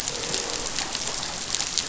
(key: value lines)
label: biophony, croak
recorder: SoundTrap 500